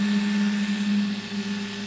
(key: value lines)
label: anthrophony, boat engine
recorder: SoundTrap 500